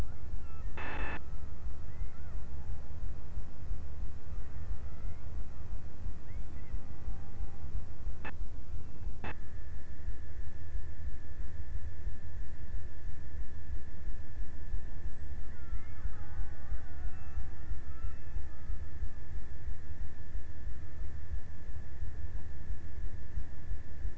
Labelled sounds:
15.1	18.9	killer whale, Bigg's (transient), 0.33 to 2.7 kHz

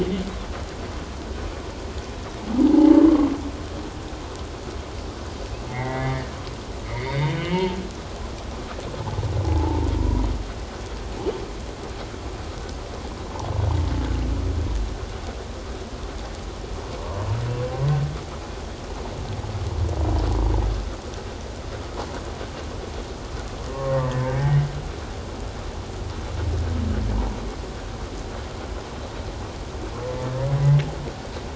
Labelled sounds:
2.7	3.0	humpback whale, 0.81 to 0.94 kHz
5.7	6.2	humpback whale, 1.8 to 2.2 kHz
6.8	7.8	humpback whale, 0.84 to 4.7 kHz
9.4	10.3	humpback whale, 0.78 to 1.0 kHz
23.7	24.3	humpback whale, 0.84 to 1.2 kHz

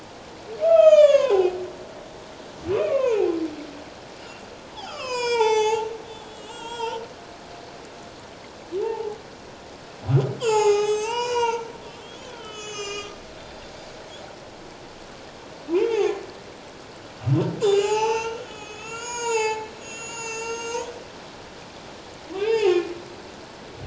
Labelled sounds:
0.6	1.6	humpback whale, 0.78 to 7.5 kHz
2.7	3.4	humpback whale, 0.78 to 2.8 kHz
4.2	4.5	humpback whale, 2.7 to 2.9 kHz
4.8	7.0	humpback whale, 0.78 to 8.0 kHz
8.8	9.2	humpback whale, 0.78 to 0.97 kHz
10.4	13.6	humpback whale, 0.78 to 8.0 kHz
15.7	16.2	humpback whale, 0.78 to 2.8 kHz
17.6	20.9	humpback whale, 0.78 to 8.0 kHz
22.4	22.9	humpback whale, 0.78 to 3.2 kHz

